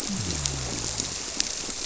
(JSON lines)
{"label": "biophony", "recorder": "SoundTrap 300"}